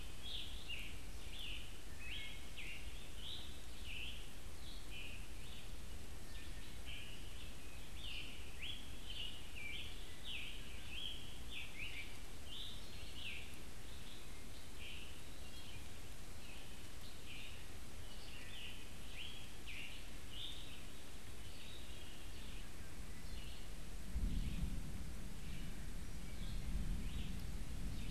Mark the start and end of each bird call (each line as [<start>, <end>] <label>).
[0.00, 22.55] Scarlet Tanager (Piranga olivacea)
[0.00, 28.11] Red-eyed Vireo (Vireo olivaceus)
[1.85, 2.55] Wood Thrush (Hylocichla mustelina)
[5.85, 7.15] Wood Thrush (Hylocichla mustelina)
[9.45, 11.15] Wood Thrush (Hylocichla mustelina)
[18.05, 18.75] Wood Thrush (Hylocichla mustelina)